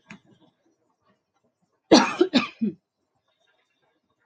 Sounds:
Cough